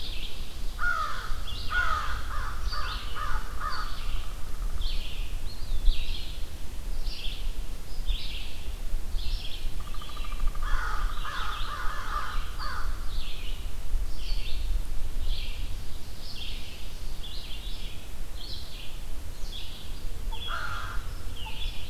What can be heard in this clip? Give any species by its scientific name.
Vireo olivaceus, Corvus brachyrhynchos, Contopus virens, Dryobates pubescens